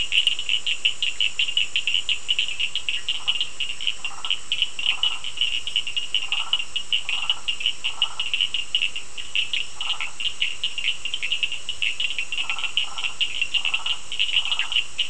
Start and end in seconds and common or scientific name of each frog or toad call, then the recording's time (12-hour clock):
0.0	15.0	Cochran's lime tree frog
3.0	8.3	Burmeister's tree frog
9.5	10.3	Burmeister's tree frog
12.3	15.0	Burmeister's tree frog
8:15pm